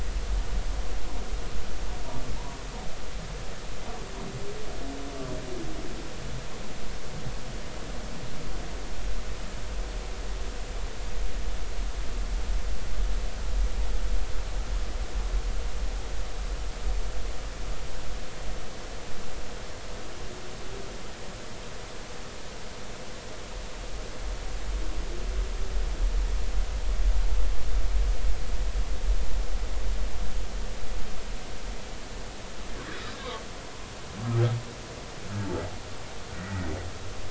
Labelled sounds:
32.9	33.2	humpback whale, 3.7 to 3.9 kHz
36.4	36.7	humpback whale, 1.8 to 2.0 kHz

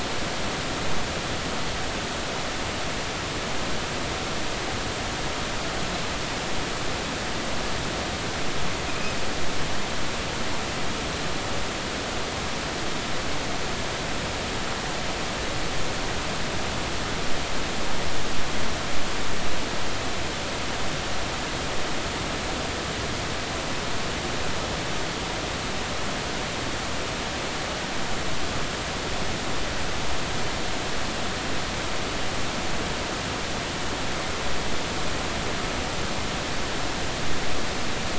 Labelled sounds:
8.9	9.2	Pacific white-sided dolphin, 2.3 to 2.6 kHz

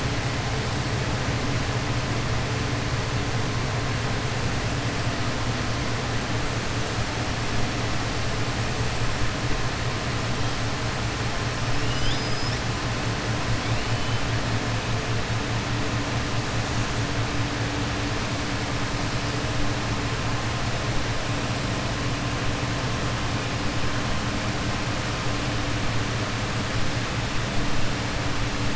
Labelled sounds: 11.8	12.6	killer whale, southern resident, 2.8 to 6.0 kHz

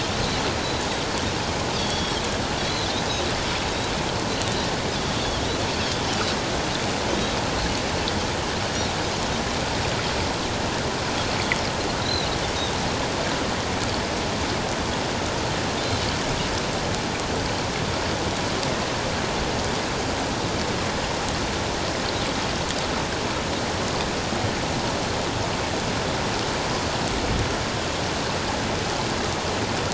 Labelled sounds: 1.7	2.1	Pacific white-sided dolphin, 3.3 to 4.7 kHz
2.6	2.9	Pacific white-sided dolphin, 3.7 to 4.2 kHz
5.2	5.5	Pacific white-sided dolphin, 3.1 to 3.5 kHz
12.0	12.3	Pacific white-sided dolphin, 3.7 to 4.2 kHz

